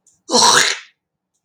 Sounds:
Throat clearing